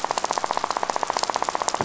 {"label": "biophony, rattle", "recorder": "SoundTrap 500"}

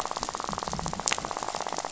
{"label": "biophony, rattle", "recorder": "SoundTrap 500"}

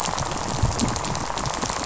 {"label": "biophony, rattle", "recorder": "SoundTrap 500"}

